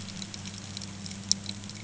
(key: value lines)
label: anthrophony, boat engine
recorder: HydroMoth